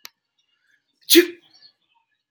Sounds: Sneeze